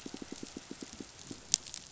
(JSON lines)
{"label": "biophony, pulse", "recorder": "SoundTrap 500"}